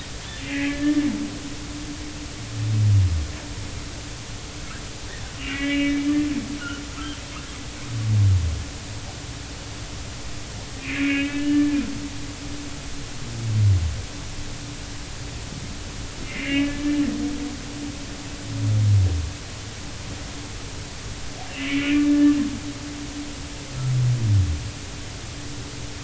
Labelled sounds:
0.4	1.1	humpback whale, 1.7 to 2.6 kHz
5.4	6.2	humpback whale, 1.9 to 2.9 kHz
10.8	11.8	humpback whale, 1.6 to 3.0 kHz
16.2	16.8	humpback whale, 1.6 to 2.9 kHz
21.5	22.4	humpback whale, 1.7 to 3.0 kHz

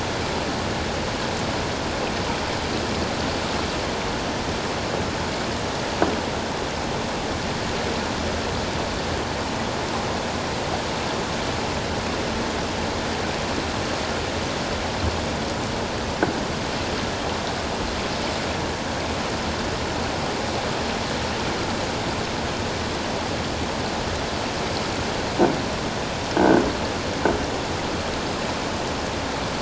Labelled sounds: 26.4	26.6	croaking sound likely from a nearby submerged object, 1.4 to 1.7 kHz

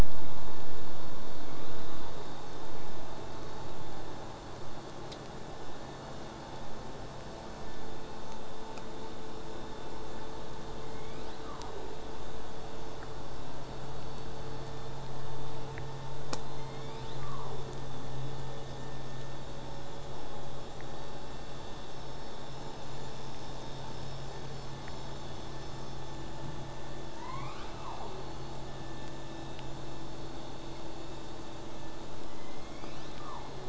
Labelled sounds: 16.4	17.7	killer whale, southern resident, J pod, call S01, 0.25 to 8.0 kHz
32.3	33.6	killer whale, southern resident, J pod, call S01, 0.35 to 8.0 kHz

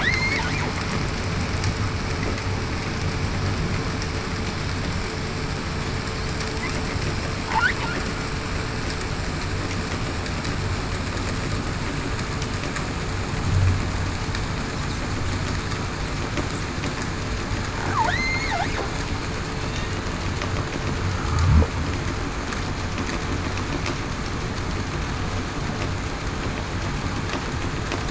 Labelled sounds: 0.0	0.4	killer whale, southern resident, 1.6 to 4.5 kHz
18.1	18.5	killer whale, southern resident, 1.7 to 4.4 kHz

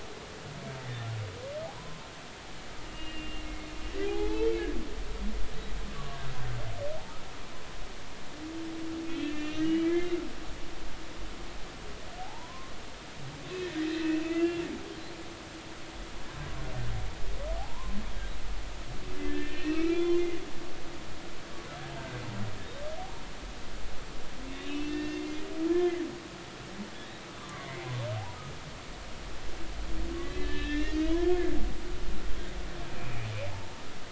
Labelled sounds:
1.8	2.0	humpback whale, 0.90 to 1.1 kHz
2.8	4.5	humpback whale, 0.80 to 2.9 kHz
5.9	6.2	humpback whale, 1.0 to 1.2 kHz
9.0	10.1	humpback whale, 1.8 to 3.9 kHz
12.2	12.7	humpback whale, 0.80 to 1.1 kHz
13.6	14.7	humpback whale, 1.8 to 2.8 kHz
17.6	18.0	humpback whale, 0.80 to 1.2 kHz
19.3	20.2	humpback whale, 1.2 to 3.5 kHz
24.5	25.2	humpback whale, 1.8 to 3.8 kHz
25.7	26.0	humpback whale, 1.7 to 2.2 kHz
27.5	27.9	humpback whale, 1.0 to 2.3 kHz
30.2	31.2	humpback whale, 1.7 to 4.9 kHz
32.9	33.8	humpback whale, 0.83 to 2.6 kHz

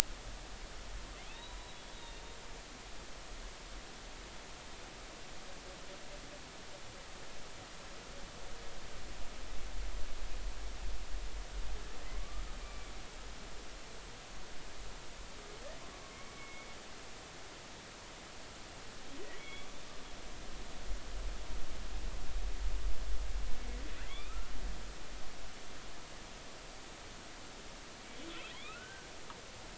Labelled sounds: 1.3	1.6	humpback whale, 3.3 to 4.0 kHz
1.9	2.2	humpback whale, 3.6 to 3.8 kHz
12.2	12.9	humpback whale, 1.1 to 2.4 kHz
16.1	16.7	humpback whale, 2.1 to 2.3 kHz
19.3	19.7	humpback whale, 2.1 to 3.4 kHz
24.0	24.5	humpback whale, 1.2 to 3.7 kHz
28.3	29.1	humpback whale, 1.2 to 4.0 kHz

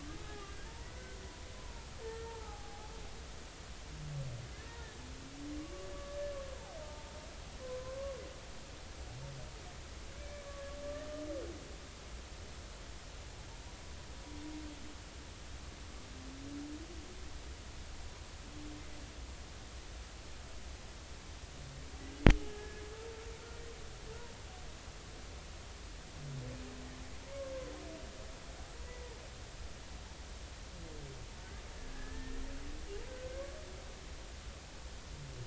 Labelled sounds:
0.0	1.2	humpback whale, 1.1 to 1.8 kHz
1.5	2.9	humpback whale, 0.80 to 1.9 kHz
4.7	5.0	humpback whale, 1.7 to 1.9 kHz
5.6	5.9	humpback whale, 1.0 to 1.2 kHz
6.8	8.2	humpback whale, 0.80 to 1.2 kHz
10.2	10.5	humpback whale, 2.2 to 2.4 kHz
22.5	22.8	humpback whale, 1.6 to 1.8 kHz
28.8	29.2	humpback whale, 1.8 to 2.0 kHz
31.4	32.4	humpback whale, 1.4 to 1.9 kHz

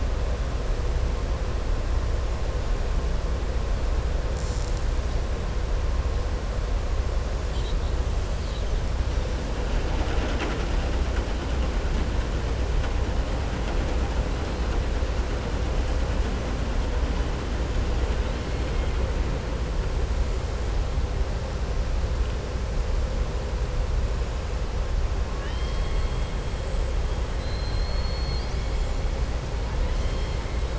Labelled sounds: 25.3	26.1	killer whale, southern resident, 1.0 to 5.4 kHz
27.3	28.6	killer whale, southern resident, 3.3 to 4.9 kHz

